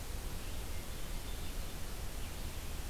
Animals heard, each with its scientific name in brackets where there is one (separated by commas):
Hermit Thrush (Catharus guttatus)